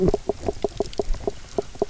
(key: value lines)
label: biophony, knock croak
recorder: SoundTrap 300